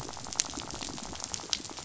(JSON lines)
{"label": "biophony, rattle", "recorder": "SoundTrap 500"}